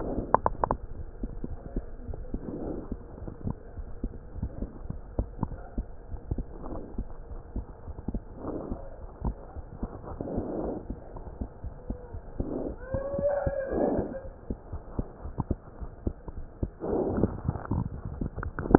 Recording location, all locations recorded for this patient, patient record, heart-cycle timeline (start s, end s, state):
pulmonary valve (PV)
aortic valve (AV)+pulmonary valve (PV)+tricuspid valve (TV)+mitral valve (MV)
#Age: Child
#Sex: Male
#Height: 81.0 cm
#Weight: 10.725 kg
#Pregnancy status: False
#Murmur: Absent
#Murmur locations: nan
#Most audible location: nan
#Systolic murmur timing: nan
#Systolic murmur shape: nan
#Systolic murmur grading: nan
#Systolic murmur pitch: nan
#Systolic murmur quality: nan
#Diastolic murmur timing: nan
#Diastolic murmur shape: nan
#Diastolic murmur grading: nan
#Diastolic murmur pitch: nan
#Diastolic murmur quality: nan
#Outcome: Abnormal
#Campaign: 2015 screening campaign
0.00	3.54	unannotated
3.54	3.76	diastole
3.76	3.88	S1
3.88	4.02	systole
4.02	4.14	S2
4.14	4.36	diastole
4.36	4.52	S1
4.52	4.60	systole
4.60	4.68	S2
4.68	4.84	diastole
4.84	5.00	S1
5.00	5.14	systole
5.14	5.28	S2
5.28	5.50	diastole
5.50	5.60	S1
5.60	5.74	systole
5.74	5.88	S2
5.88	6.10	diastole
6.10	6.20	S1
6.20	6.32	systole
6.32	6.46	S2
6.46	6.70	diastole
6.70	6.84	S1
6.84	6.98	systole
6.98	7.10	S2
7.10	7.30	diastole
7.30	7.42	S1
7.42	7.54	systole
7.54	7.66	S2
7.66	7.85	diastole
7.85	7.96	S1
7.96	8.08	systole
8.08	8.24	S2
8.24	8.44	diastole
8.44	8.56	S1
8.56	8.70	systole
8.70	8.80	S2
8.80	9.02	diastole
9.02	9.10	S1
9.10	9.22	systole
9.22	9.36	S2
9.36	9.58	diastole
9.58	9.68	S1
9.68	9.80	systole
9.80	9.92	S2
9.92	10.08	diastole
10.08	10.18	S1
10.18	10.32	systole
10.32	10.46	S2
10.46	10.62	diastole
10.62	10.76	S1
10.76	10.88	systole
10.88	11.00	S2
11.00	11.16	diastole
11.16	11.26	S1
11.26	11.39	systole
11.39	11.50	S2
11.50	11.62	diastole
11.62	11.73	S1
11.73	11.87	systole
11.87	11.97	S2
11.97	12.13	diastole
12.13	12.23	S1
12.23	12.38	systole
12.38	12.49	S2
12.49	12.67	diastole
12.67	18.78	unannotated